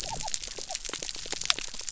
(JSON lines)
{"label": "biophony", "recorder": "SoundTrap 300"}